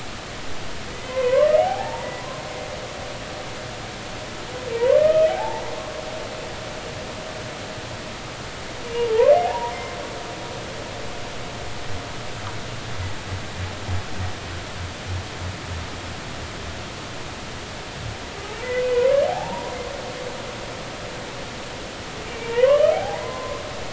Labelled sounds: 0.9	2.2	humpback whale, 0.80 to 2.2 kHz
4.7	5.6	humpback whale, 0.80 to 2.6 kHz
9.0	9.3	humpback whale, 0.83 to 1.2 kHz
19.2	19.7	humpback whale, 0.80 to 1.1 kHz
22.3	23.9	humpback whale, 0.80 to 2.4 kHz

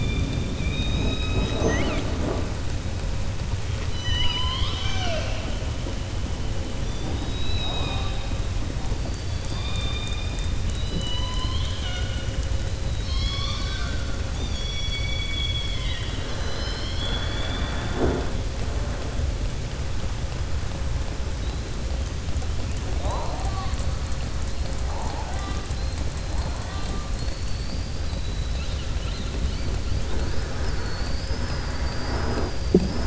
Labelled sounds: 3.8	5.5	killer whale, southern resident, 0.66 to 6.3 kHz
9.0	10.5	killer whale, southern resident, 1.1 to 4.9 kHz
27.1	27.9	killer whale, southern resident, 4.2 to 4.8 kHz

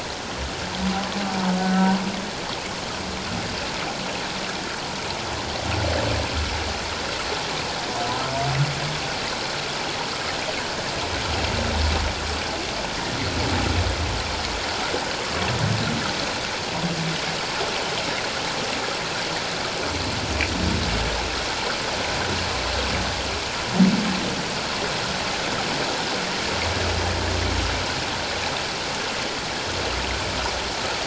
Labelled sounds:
1.6	1.9	humpback whale, 1.5 to 1.6 kHz

